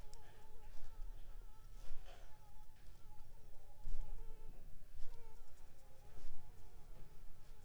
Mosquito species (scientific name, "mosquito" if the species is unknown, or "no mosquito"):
Anopheles arabiensis